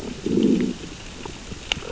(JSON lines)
{"label": "biophony, growl", "recorder": "SoundTrap 600 or HydroMoth"}